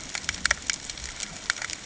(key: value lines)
label: ambient
recorder: HydroMoth